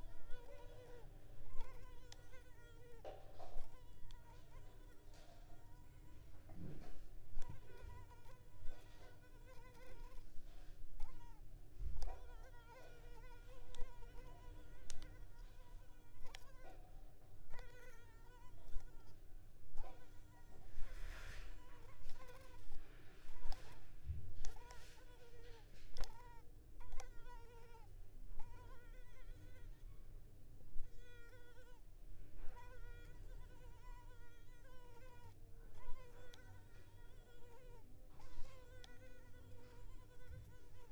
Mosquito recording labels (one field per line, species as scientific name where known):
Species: Culex tigripes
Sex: female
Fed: unfed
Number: one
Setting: cup